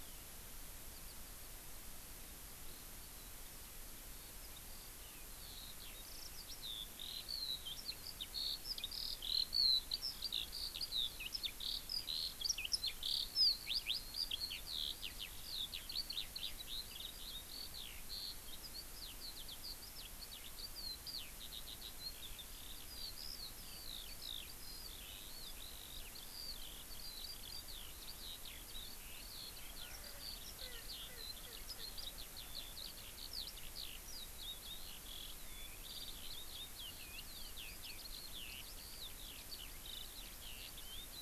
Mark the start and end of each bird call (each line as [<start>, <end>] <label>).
[4.12, 41.22] Eurasian Skylark (Alauda arvensis)
[29.82, 32.62] Erckel's Francolin (Pternistis erckelii)